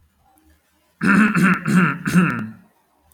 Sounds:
Throat clearing